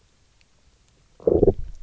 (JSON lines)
{"label": "biophony, low growl", "recorder": "SoundTrap 300"}